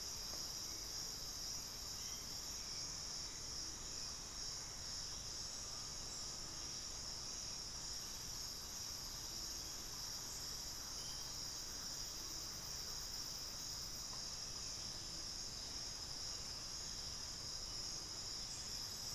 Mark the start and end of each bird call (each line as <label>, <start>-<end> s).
Hauxwell's Thrush (Turdus hauxwelli), 0.0-4.8 s
Undulated Tinamou (Crypturellus undulatus), 5.5-7.2 s
Lemon-throated Barbet (Eubucco richardsoni), 13.6-18.4 s
unidentified bird, 14.3-15.4 s